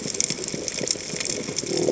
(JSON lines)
{"label": "biophony", "recorder": "HydroMoth"}